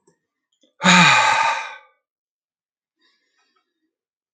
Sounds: Sigh